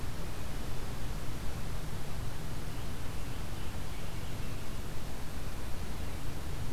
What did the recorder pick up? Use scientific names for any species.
Piranga olivacea